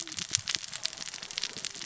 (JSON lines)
{"label": "biophony, cascading saw", "recorder": "SoundTrap 600 or HydroMoth"}